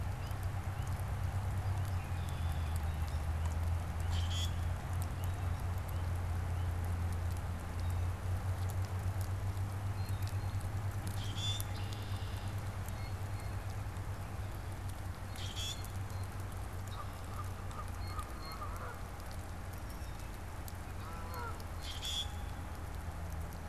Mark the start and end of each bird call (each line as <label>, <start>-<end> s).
Hairy Woodpecker (Dryobates villosus), 0.1-0.4 s
Red-winged Blackbird (Agelaius phoeniceus), 1.8-3.0 s
Common Grackle (Quiscalus quiscula), 3.9-4.8 s
Blue Jay (Cyanocitta cristata), 9.8-10.8 s
Common Grackle (Quiscalus quiscula), 11.0-11.8 s
Red-winged Blackbird (Agelaius phoeniceus), 11.4-12.8 s
Blue Jay (Cyanocitta cristata), 12.7-13.9 s
Common Grackle (Quiscalus quiscula), 15.3-16.0 s
Canada Goose (Branta canadensis), 16.7-21.6 s
Blue Jay (Cyanocitta cristata), 17.6-18.9 s
Common Grackle (Quiscalus quiscula), 21.7-22.7 s